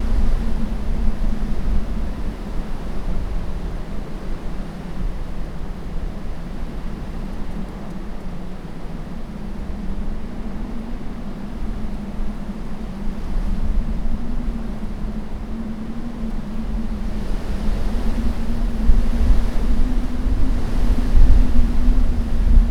Is there a fire burning?
no